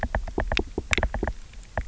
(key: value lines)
label: biophony, knock
recorder: SoundTrap 300